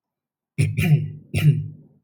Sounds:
Throat clearing